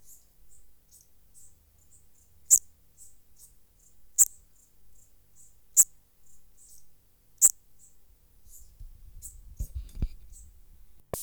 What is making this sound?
Eupholidoptera garganica, an orthopteran